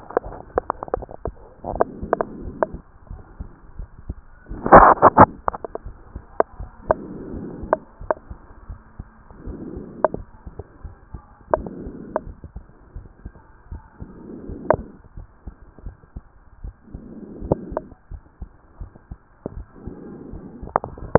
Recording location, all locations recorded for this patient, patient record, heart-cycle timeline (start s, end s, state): pulmonary valve (PV)
pulmonary valve (PV)+tricuspid valve (TV)+mitral valve (MV)
#Age: Child
#Sex: Female
#Height: 135.0 cm
#Weight: 38.4 kg
#Pregnancy status: False
#Murmur: Absent
#Murmur locations: nan
#Most audible location: nan
#Systolic murmur timing: nan
#Systolic murmur shape: nan
#Systolic murmur grading: nan
#Systolic murmur pitch: nan
#Systolic murmur quality: nan
#Diastolic murmur timing: nan
#Diastolic murmur shape: nan
#Diastolic murmur grading: nan
#Diastolic murmur pitch: nan
#Diastolic murmur quality: nan
#Outcome: Abnormal
#Campaign: 2014 screening campaign
0.00	15.03	unannotated
15.03	15.16	diastole
15.16	15.26	S1
15.26	15.46	systole
15.46	15.54	S2
15.54	15.84	diastole
15.84	15.96	S1
15.96	16.14	systole
16.14	16.24	S2
16.24	16.62	diastole
16.62	16.74	S1
16.74	16.92	systole
16.92	17.02	S2
17.02	17.42	diastole
17.42	17.58	S1
17.58	17.72	systole
17.72	17.84	S2
17.84	18.12	diastole
18.12	18.22	S1
18.22	18.40	systole
18.40	18.50	S2
18.50	18.80	diastole
18.80	18.90	S1
18.90	19.10	systole
19.10	19.18	S2
19.18	19.45	diastole
19.45	21.18	unannotated